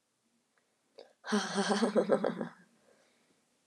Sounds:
Laughter